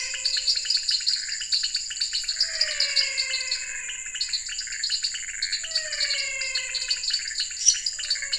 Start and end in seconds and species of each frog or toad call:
0.0	8.3	Dendropsophus nanus
0.0	8.3	Leptodactylus podicipinus
0.0	8.3	Physalaemus albonotatus
0.0	8.3	Pithecopus azureus
7.5	8.0	Dendropsophus minutus
8:00pm

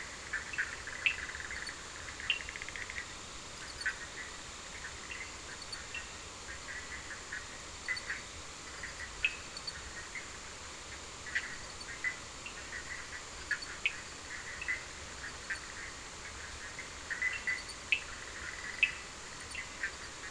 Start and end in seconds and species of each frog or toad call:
0.0	20.3	Boana bischoffi
1.0	1.3	Sphaenorhynchus surdus
2.3	2.5	Sphaenorhynchus surdus
9.2	9.5	Sphaenorhynchus surdus
13.8	14.0	Sphaenorhynchus surdus
17.8	19.0	Sphaenorhynchus surdus
10:30pm

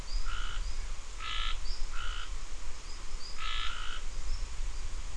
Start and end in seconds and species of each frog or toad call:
0.0	2.3	Scinax perereca
3.4	4.0	Scinax perereca
5:45pm

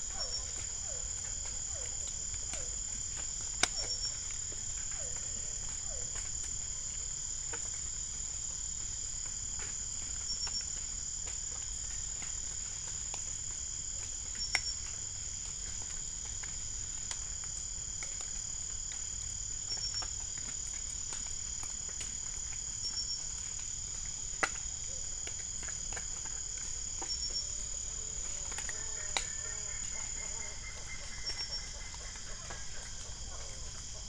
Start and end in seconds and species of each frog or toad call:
0.0	6.1	Physalaemus cuvieri
6:15pm

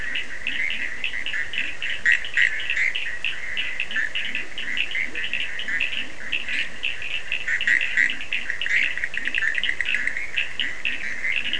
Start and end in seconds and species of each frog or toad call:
0.0	11.5	Boana bischoffi
0.0	11.5	Sphaenorhynchus surdus
0.2	2.5	Leptodactylus latrans
3.5	11.5	Leptodactylus latrans
12:00am

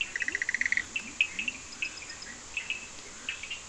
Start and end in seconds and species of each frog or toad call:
0.0	1.1	Boana bischoffi
0.0	1.9	Leptodactylus latrans
0.0	3.6	Sphaenorhynchus surdus
4:30am

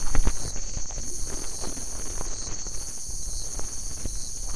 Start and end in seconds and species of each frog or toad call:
1.0	1.3	Leptodactylus latrans
12:30am

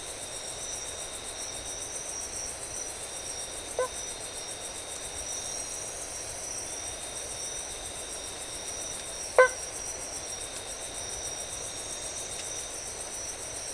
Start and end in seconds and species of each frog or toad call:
3.6	4.2	Boana faber
9.3	9.7	Boana faber
4:00am

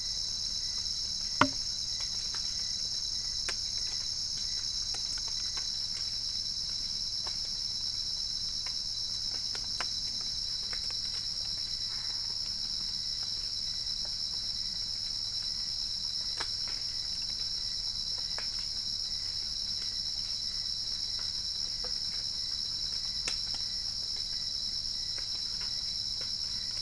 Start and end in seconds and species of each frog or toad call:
11.9	12.3	Boana albopunctata
5:00am

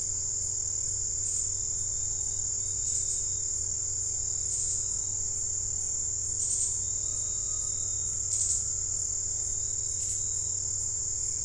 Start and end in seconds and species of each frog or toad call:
none
6:00pm

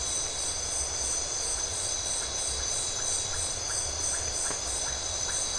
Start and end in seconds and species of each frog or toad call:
1.3	5.5	Leptodactylus notoaktites
1:15am

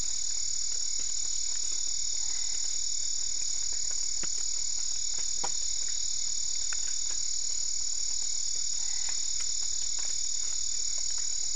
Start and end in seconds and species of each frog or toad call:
2.1	2.9	Boana albopunctata
8.7	9.3	Boana albopunctata
9:30pm

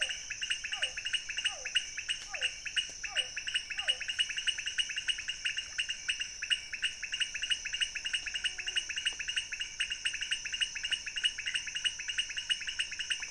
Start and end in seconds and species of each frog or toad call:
0.0	4.0	Physalaemus cuvieri
0.0	13.3	Leptodactylus podicipinus
12:00am

